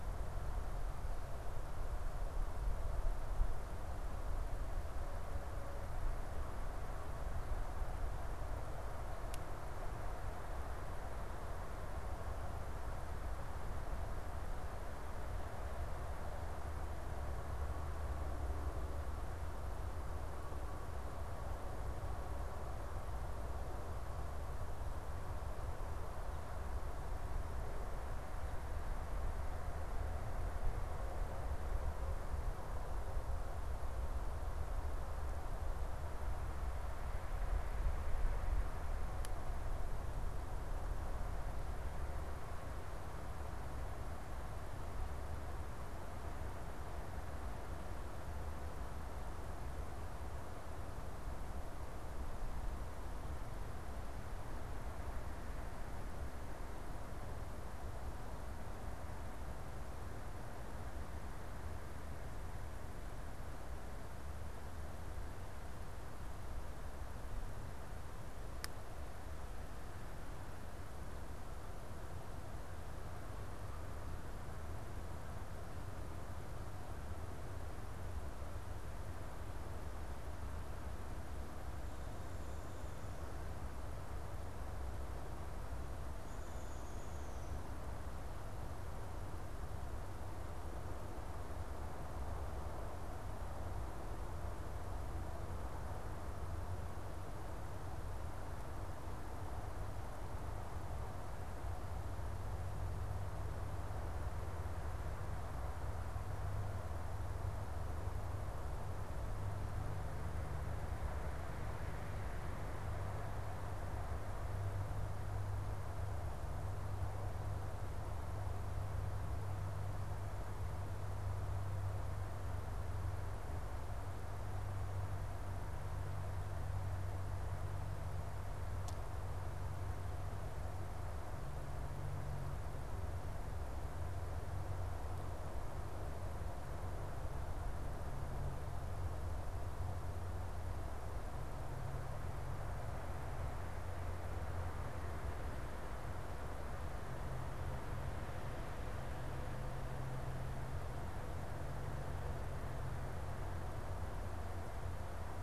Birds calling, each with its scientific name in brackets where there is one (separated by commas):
Downy Woodpecker (Dryobates pubescens)